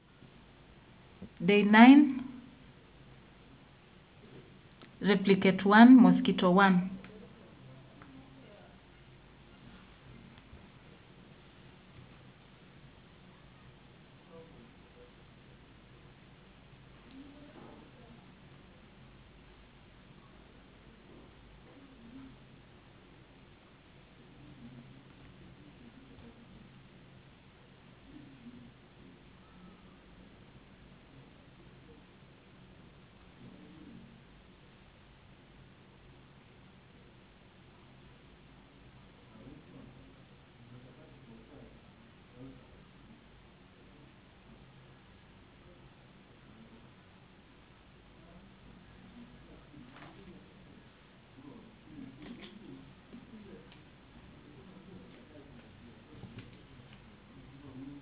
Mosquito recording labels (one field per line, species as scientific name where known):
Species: no mosquito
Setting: insect culture